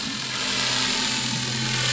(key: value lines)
label: anthrophony, boat engine
recorder: SoundTrap 500